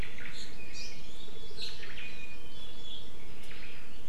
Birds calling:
Omao (Myadestes obscurus), Hawaii Amakihi (Chlorodrepanis virens)

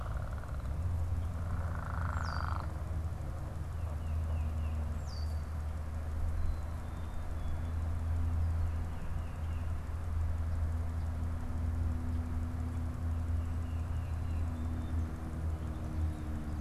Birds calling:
Black-capped Chickadee (Poecile atricapillus), Tufted Titmouse (Baeolophus bicolor), unidentified bird

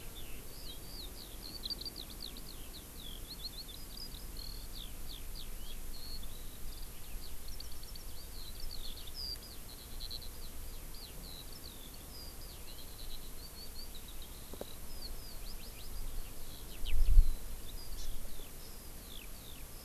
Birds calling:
Hawaii Amakihi (Chlorodrepanis virens), Eurasian Skylark (Alauda arvensis)

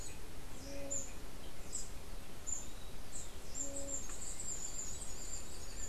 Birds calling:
Scrub Tanager (Stilpnia vitriolina), unidentified bird

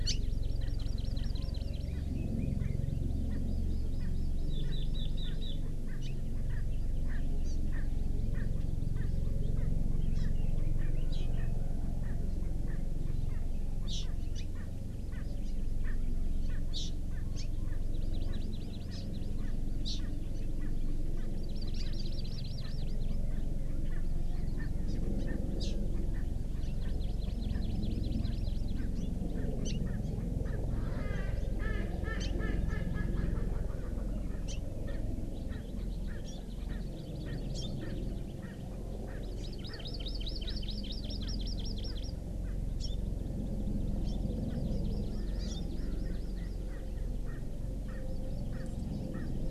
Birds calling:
Erckel's Francolin (Pternistis erckelii), House Finch (Haemorhous mexicanus), Hawaii Amakihi (Chlorodrepanis virens)

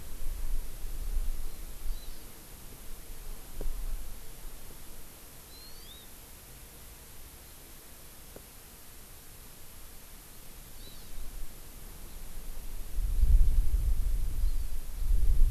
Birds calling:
Hawaii Amakihi (Chlorodrepanis virens)

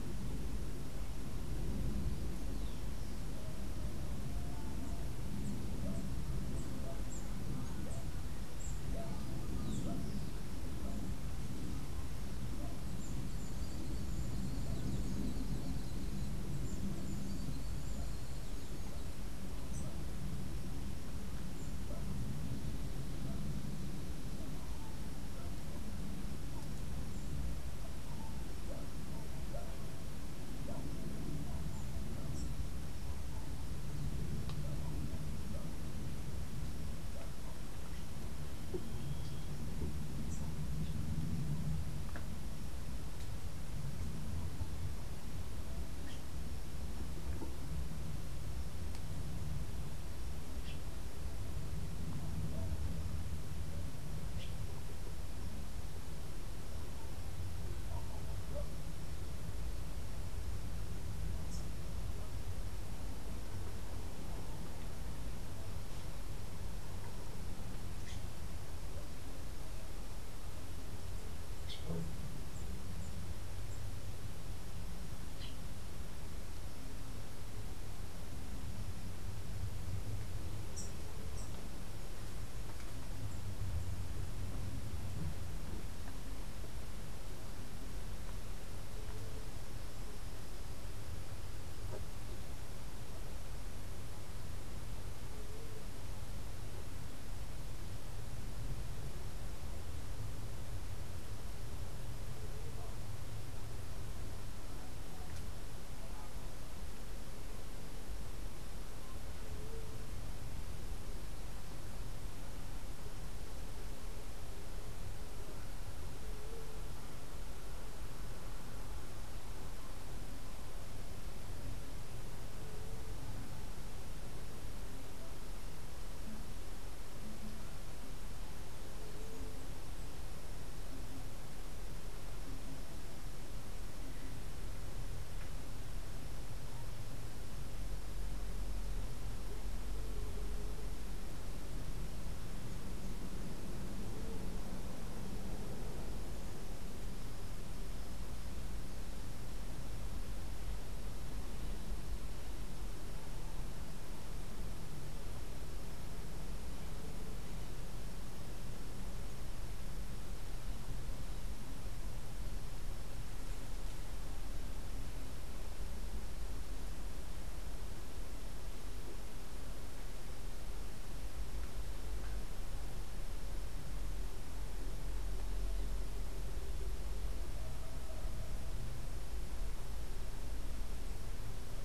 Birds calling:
White-tipped Dove (Leptotila verreauxi), Flame-rumped Tanager (Ramphocelus flammigerus)

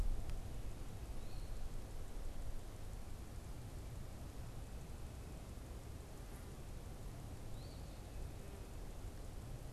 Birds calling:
Eastern Phoebe (Sayornis phoebe)

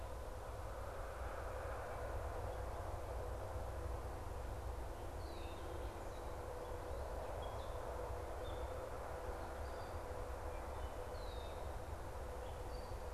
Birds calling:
unidentified bird, Red-winged Blackbird (Agelaius phoeniceus)

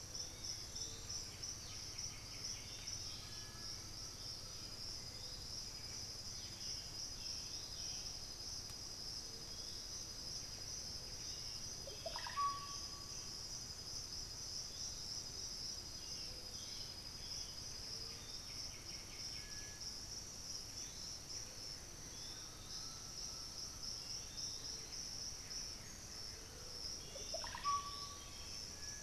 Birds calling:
Black-billed Thrush (Turdus ignobilis), Blue-gray Saltator (Saltator coerulescens), Russet-backed Oropendola (Psarocolius angustifrons), White-winged Becard (Pachyramphus polychopterus), Undulated Tinamou (Crypturellus undulatus), unidentified bird, Piratic Flycatcher (Legatus leucophaius), Black-throated Antbird (Myrmophylax atrothorax), Buff-breasted Wren (Cantorchilus leucotis)

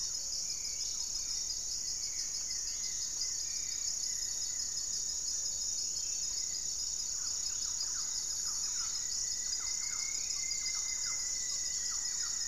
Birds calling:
Goeldi's Antbird (Akletos goeldii), Thrush-like Wren (Campylorhynchus turdinus), Hauxwell's Thrush (Turdus hauxwelli), Rufous-fronted Antthrush (Formicarius rufifrons), Gray-fronted Dove (Leptotila rufaxilla)

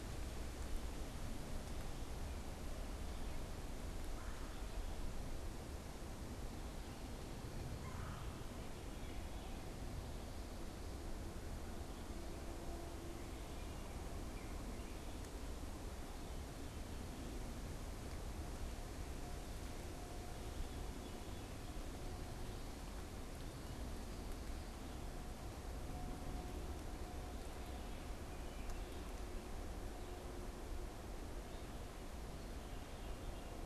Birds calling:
Red-bellied Woodpecker (Melanerpes carolinus), American Robin (Turdus migratorius), unidentified bird

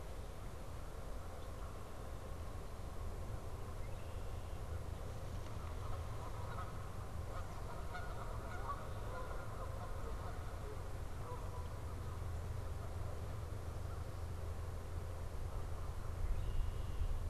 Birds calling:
American Crow (Corvus brachyrhynchos), Red-winged Blackbird (Agelaius phoeniceus), Canada Goose (Branta canadensis)

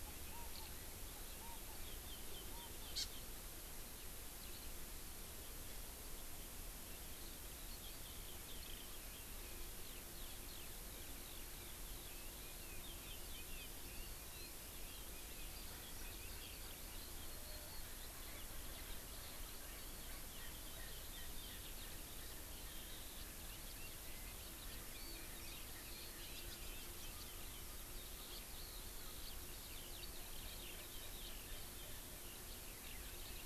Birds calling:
Erckel's Francolin (Pternistis erckelii), Eurasian Skylark (Alauda arvensis), Chinese Hwamei (Garrulax canorus), Hawaii Amakihi (Chlorodrepanis virens)

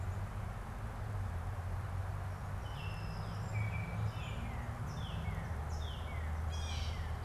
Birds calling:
Song Sparrow (Melospiza melodia), Northern Cardinal (Cardinalis cardinalis), Baltimore Oriole (Icterus galbula), Blue Jay (Cyanocitta cristata)

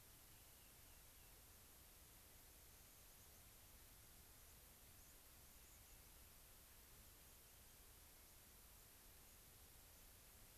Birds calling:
White-crowned Sparrow (Zonotrichia leucophrys), Rock Wren (Salpinctes obsoletus)

